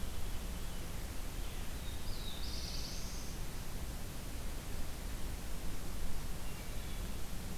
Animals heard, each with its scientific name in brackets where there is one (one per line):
Black-throated Blue Warbler (Setophaga caerulescens)